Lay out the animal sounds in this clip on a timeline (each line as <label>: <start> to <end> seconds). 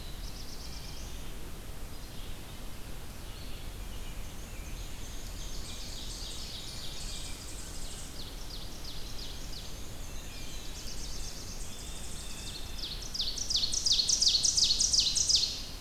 Black-throated Blue Warbler (Setophaga caerulescens): 0.0 to 1.3 seconds
Red-eyed Vireo (Vireo olivaceus): 0.0 to 5.1 seconds
Black-and-white Warbler (Mniotilta varia): 3.9 to 6.4 seconds
Ovenbird (Seiurus aurocapilla): 4.9 to 7.3 seconds
Tennessee Warbler (Leiothlypis peregrina): 5.3 to 8.2 seconds
Ovenbird (Seiurus aurocapilla): 7.8 to 10.0 seconds
Black-and-white Warbler (Mniotilta varia): 9.0 to 10.8 seconds
Blue Jay (Cyanocitta cristata): 9.9 to 11.0 seconds
Black-throated Blue Warbler (Setophaga caerulescens): 9.9 to 11.7 seconds
Tennessee Warbler (Leiothlypis peregrina): 10.5 to 12.7 seconds
Blue Jay (Cyanocitta cristata): 11.4 to 13.0 seconds
Ovenbird (Seiurus aurocapilla): 12.2 to 15.8 seconds